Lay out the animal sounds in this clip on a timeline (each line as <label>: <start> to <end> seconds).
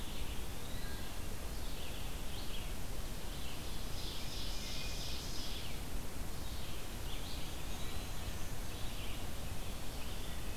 Eastern Wood-Pewee (Contopus virens): 0.0 to 1.3 seconds
Red-eyed Vireo (Vireo olivaceus): 0.0 to 10.6 seconds
Ovenbird (Seiurus aurocapilla): 3.3 to 6.1 seconds
Eastern Wood-Pewee (Contopus virens): 7.0 to 8.2 seconds
Wood Thrush (Hylocichla mustelina): 7.9 to 8.7 seconds